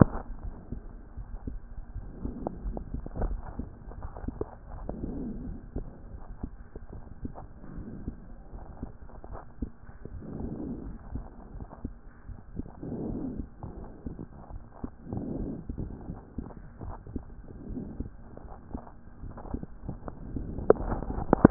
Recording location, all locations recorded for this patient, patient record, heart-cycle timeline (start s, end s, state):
aortic valve (AV)
aortic valve (AV)+pulmonary valve (PV)+tricuspid valve (TV)+mitral valve (MV)
#Age: Child
#Sex: Male
#Height: 127.0 cm
#Weight: 26.6 kg
#Pregnancy status: False
#Murmur: Absent
#Murmur locations: nan
#Most audible location: nan
#Systolic murmur timing: nan
#Systolic murmur shape: nan
#Systolic murmur grading: nan
#Systolic murmur pitch: nan
#Systolic murmur quality: nan
#Diastolic murmur timing: nan
#Diastolic murmur shape: nan
#Diastolic murmur grading: nan
#Diastolic murmur pitch: nan
#Diastolic murmur quality: nan
#Outcome: Abnormal
#Campaign: 2014 screening campaign
0.00	0.44	unannotated
0.44	0.54	S1
0.54	0.72	systole
0.72	0.82	S2
0.82	1.18	diastole
1.18	1.28	S1
1.28	1.48	systole
1.48	1.58	S2
1.58	1.96	diastole
1.96	2.08	S1
2.08	2.22	systole
2.22	2.34	S2
2.34	2.65	diastole
2.65	2.77	S1
2.77	2.92	systole
2.92	3.02	S2
3.02	3.18	diastole
3.18	3.40	S1
3.40	3.58	systole
3.58	3.68	S2
3.68	3.98	diastole
3.98	21.50	unannotated